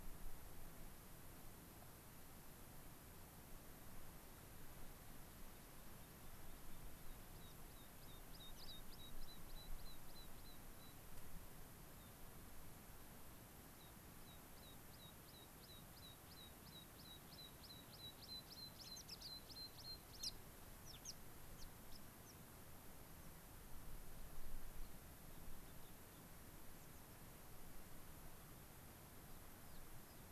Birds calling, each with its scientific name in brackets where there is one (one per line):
American Pipit (Anthus rubescens)
unidentified bird